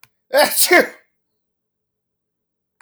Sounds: Sneeze